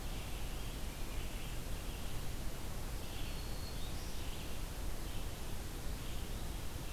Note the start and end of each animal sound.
0.0s-6.9s: Red-eyed Vireo (Vireo olivaceus)
3.2s-4.3s: Black-throated Green Warbler (Setophaga virens)

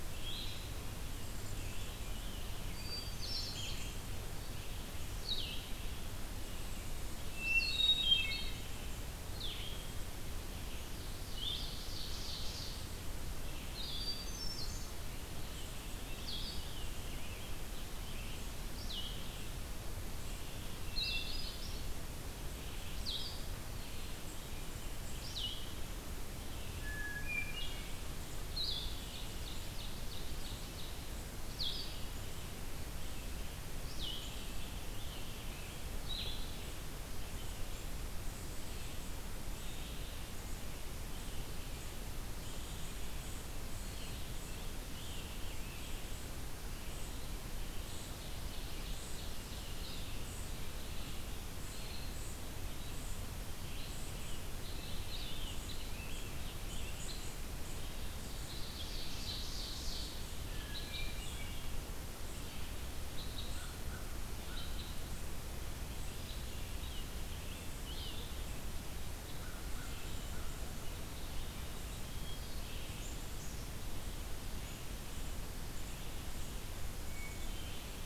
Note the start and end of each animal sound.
0.0s-5.7s: Blue-headed Vireo (Vireo solitarius)
0.0s-9.1s: Red-eyed Vireo (Vireo olivaceus)
2.8s-4.0s: Hermit Thrush (Catharus guttatus)
7.3s-8.5s: Hermit Thrush (Catharus guttatus)
9.1s-36.6s: Blue-headed Vireo (Vireo solitarius)
10.3s-68.4s: Red-eyed Vireo (Vireo olivaceus)
11.0s-12.9s: Ovenbird (Seiurus aurocapilla)
13.8s-15.2s: Hermit Thrush (Catharus guttatus)
15.4s-18.6s: Scarlet Tanager (Piranga olivacea)
20.6s-21.9s: Hermit Thrush (Catharus guttatus)
26.7s-28.0s: Hermit Thrush (Catharus guttatus)
28.8s-31.0s: Ovenbird (Seiurus aurocapilla)
33.9s-35.8s: Scarlet Tanager (Piranga olivacea)
43.7s-46.1s: Scarlet Tanager (Piranga olivacea)
47.7s-50.0s: Ovenbird (Seiurus aurocapilla)
53.9s-57.1s: Scarlet Tanager (Piranga olivacea)
58.2s-60.2s: Ovenbird (Seiurus aurocapilla)
60.4s-61.9s: Hermit Thrush (Catharus guttatus)
63.4s-64.8s: American Crow (Corvus brachyrhynchos)
65.9s-68.2s: Scarlet Tanager (Piranga olivacea)
69.0s-76.5s: Red-eyed Vireo (Vireo olivaceus)
69.2s-70.8s: American Crow (Corvus brachyrhynchos)
71.9s-72.8s: Hermit Thrush (Catharus guttatus)
77.0s-78.0s: Hermit Thrush (Catharus guttatus)

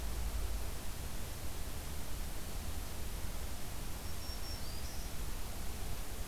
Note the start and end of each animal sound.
3.9s-5.2s: Black-throated Green Warbler (Setophaga virens)

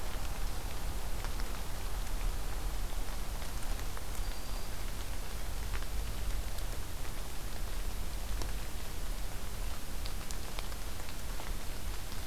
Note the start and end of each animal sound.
4.1s-4.8s: Black-throated Green Warbler (Setophaga virens)

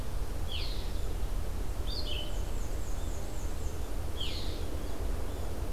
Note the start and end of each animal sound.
0.4s-0.9s: Red-eyed Vireo (Vireo olivaceus)
1.8s-2.3s: Red-eyed Vireo (Vireo olivaceus)
2.2s-3.9s: Black-and-white Warbler (Mniotilta varia)
4.1s-4.6s: Red-eyed Vireo (Vireo olivaceus)

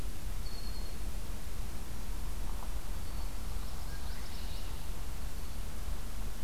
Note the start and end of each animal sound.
0.3s-1.0s: Red-winged Blackbird (Agelaius phoeniceus)
2.8s-3.4s: Red-winged Blackbird (Agelaius phoeniceus)
3.6s-4.8s: Common Yellowthroat (Geothlypis trichas)

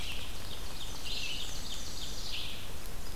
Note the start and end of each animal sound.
0.0s-3.2s: Red-eyed Vireo (Vireo olivaceus)
0.5s-2.4s: Ovenbird (Seiurus aurocapilla)
0.9s-2.5s: Black-and-white Warbler (Mniotilta varia)

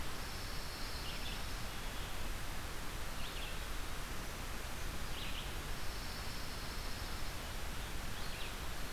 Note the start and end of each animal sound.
0.0s-1.5s: Pine Warbler (Setophaga pinus)
0.0s-8.9s: Red-eyed Vireo (Vireo olivaceus)
5.5s-7.4s: Pine Warbler (Setophaga pinus)

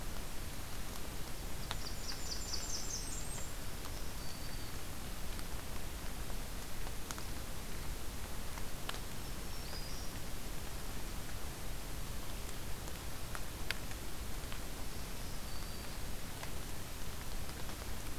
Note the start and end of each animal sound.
1.5s-3.5s: Blackburnian Warbler (Setophaga fusca)
3.4s-4.8s: Black-throated Green Warbler (Setophaga virens)
9.2s-10.1s: Black-throated Green Warbler (Setophaga virens)
14.7s-16.0s: Black-throated Green Warbler (Setophaga virens)

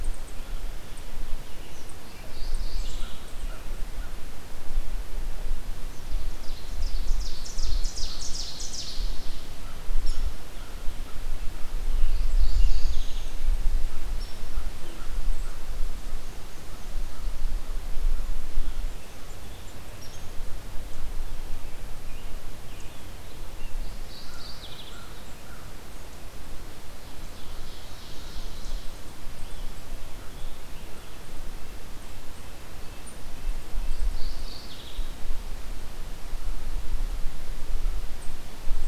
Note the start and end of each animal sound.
1.5s-3.8s: American Robin (Turdus migratorius)
2.0s-3.3s: Mourning Warbler (Geothlypis philadelphia)
2.9s-4.4s: American Crow (Corvus brachyrhynchos)
5.8s-9.3s: Ovenbird (Seiurus aurocapilla)
9.3s-11.8s: American Crow (Corvus brachyrhynchos)
9.9s-10.3s: Hairy Woodpecker (Dryobates villosus)
12.1s-13.3s: Mourning Warbler (Geothlypis philadelphia)
12.5s-13.4s: unidentified call
14.4s-15.6s: American Crow (Corvus brachyrhynchos)
18.3s-20.2s: Scarlet Tanager (Piranga olivacea)
21.3s-23.8s: American Robin (Turdus migratorius)
23.8s-24.9s: Mourning Warbler (Geothlypis philadelphia)
24.0s-26.0s: American Crow (Corvus brachyrhynchos)
26.9s-29.1s: Ovenbird (Seiurus aurocapilla)
29.2s-31.2s: Scarlet Tanager (Piranga olivacea)
31.5s-34.2s: Red-breasted Nuthatch (Sitta canadensis)
33.9s-35.1s: Mourning Warbler (Geothlypis philadelphia)

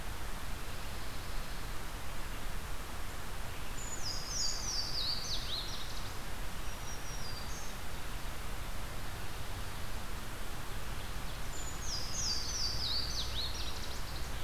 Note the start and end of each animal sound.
3.7s-5.0s: Brown Creeper (Certhia americana)
3.8s-6.4s: Louisiana Waterthrush (Parkesia motacilla)
6.3s-8.0s: Black-throated Green Warbler (Setophaga virens)
11.5s-12.8s: Brown Creeper (Certhia americana)
11.7s-14.2s: Louisiana Waterthrush (Parkesia motacilla)

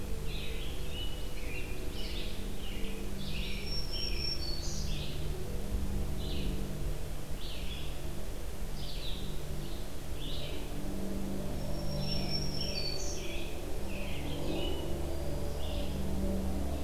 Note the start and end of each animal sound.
0.0s-2.4s: American Robin (Turdus migratorius)
0.0s-16.3s: Red-eyed Vireo (Vireo olivaceus)
3.3s-5.1s: Black-throated Green Warbler (Setophaga virens)
11.5s-13.5s: Black-throated Green Warbler (Setophaga virens)
11.7s-15.0s: American Robin (Turdus migratorius)
15.0s-16.1s: Eastern Wood-Pewee (Contopus virens)

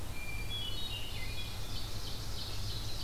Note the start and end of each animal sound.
0.0s-0.7s: Eastern Wood-Pewee (Contopus virens)
0.0s-1.5s: Hermit Thrush (Catharus guttatus)
0.6s-3.0s: Red-eyed Vireo (Vireo olivaceus)
1.2s-3.0s: Ovenbird (Seiurus aurocapilla)

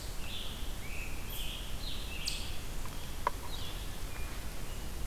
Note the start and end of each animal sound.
0.0s-2.9s: Scarlet Tanager (Piranga olivacea)
3.3s-5.1s: Red-eyed Vireo (Vireo olivaceus)

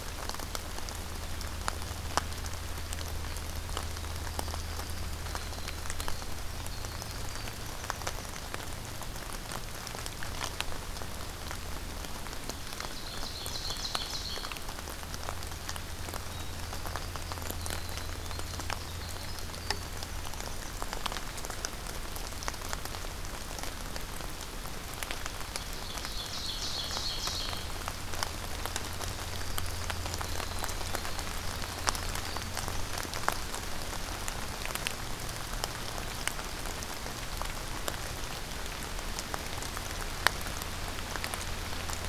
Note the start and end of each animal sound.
3.9s-8.5s: Winter Wren (Troglodytes hiemalis)
12.8s-14.5s: Ovenbird (Seiurus aurocapilla)
16.3s-20.9s: Winter Wren (Troglodytes hiemalis)
25.4s-27.7s: Ovenbird (Seiurus aurocapilla)
28.8s-33.5s: Winter Wren (Troglodytes hiemalis)

